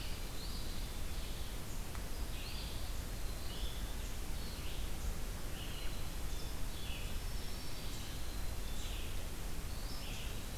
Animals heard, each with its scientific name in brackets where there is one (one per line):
Eastern Phoebe (Sayornis phoebe)
Black-throated Green Warbler (Setophaga virens)
Black-capped Chickadee (Poecile atricapillus)
Eastern Wood-Pewee (Contopus virens)
Red-eyed Vireo (Vireo olivaceus)